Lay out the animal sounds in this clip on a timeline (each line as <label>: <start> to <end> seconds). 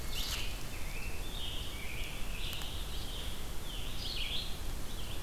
Winter Wren (Troglodytes hiemalis): 0.0 to 1.2 seconds
Red-eyed Vireo (Vireo olivaceus): 0.0 to 5.2 seconds
Scarlet Tanager (Piranga olivacea): 0.6 to 3.8 seconds